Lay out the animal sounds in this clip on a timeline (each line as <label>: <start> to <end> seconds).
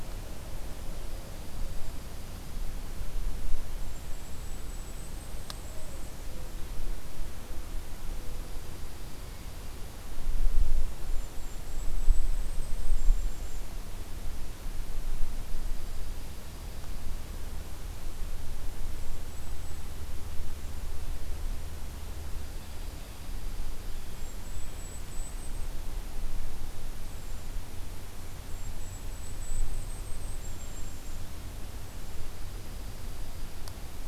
Dark-eyed Junco (Junco hyemalis): 0.8 to 2.9 seconds
Golden-crowned Kinglet (Regulus satrapa): 3.6 to 6.5 seconds
Dark-eyed Junco (Junco hyemalis): 8.3 to 10.1 seconds
Golden-crowned Kinglet (Regulus satrapa): 10.7 to 13.7 seconds
Dark-eyed Junco (Junco hyemalis): 15.2 to 17.4 seconds
Golden-crowned Kinglet (Regulus satrapa): 18.4 to 19.9 seconds
Dark-eyed Junco (Junco hyemalis): 22.4 to 24.3 seconds
Golden-crowned Kinglet (Regulus satrapa): 23.9 to 25.7 seconds
Golden-crowned Kinglet (Regulus satrapa): 28.2 to 31.2 seconds
Dark-eyed Junco (Junco hyemalis): 32.0 to 34.1 seconds